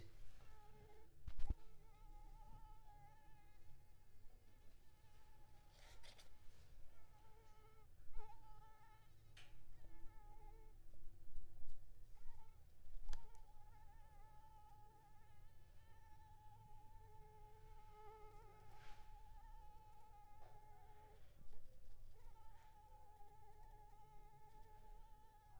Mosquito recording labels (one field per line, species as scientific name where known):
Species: Anopheles arabiensis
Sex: female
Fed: unfed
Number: one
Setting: cup